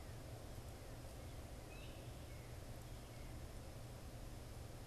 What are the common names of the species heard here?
Gray Catbird, Northern Cardinal